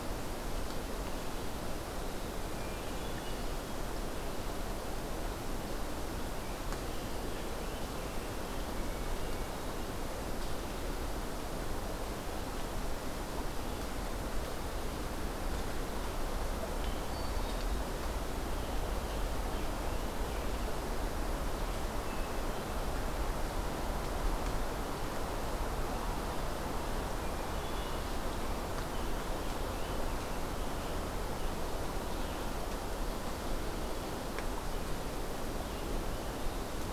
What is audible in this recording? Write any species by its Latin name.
Catharus guttatus